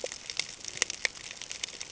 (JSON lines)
{"label": "ambient", "recorder": "HydroMoth"}